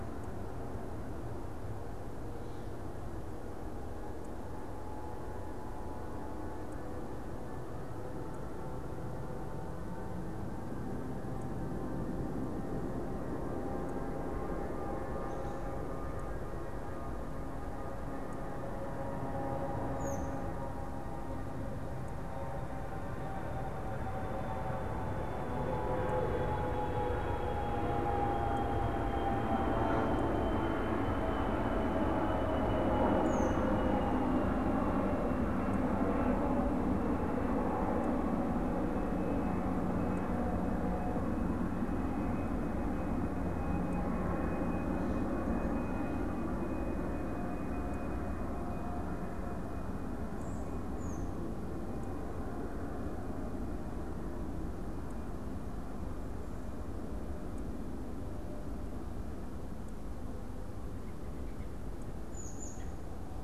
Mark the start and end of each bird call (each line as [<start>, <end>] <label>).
[19.91, 20.41] American Robin (Turdus migratorius)
[33.11, 33.71] American Robin (Turdus migratorius)
[50.91, 51.41] American Robin (Turdus migratorius)
[60.41, 61.81] American Robin (Turdus migratorius)
[62.21, 63.01] American Robin (Turdus migratorius)